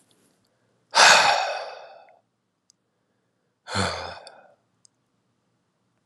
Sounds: Sigh